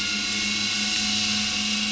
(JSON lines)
{"label": "anthrophony, boat engine", "recorder": "SoundTrap 500"}